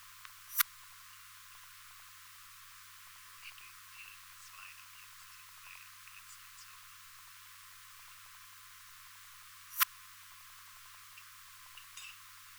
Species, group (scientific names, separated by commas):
Poecilimon affinis, Orthoptera